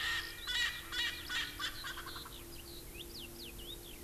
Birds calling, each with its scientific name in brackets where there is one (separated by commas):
Eurasian Skylark (Alauda arvensis), Erckel's Francolin (Pternistis erckelii)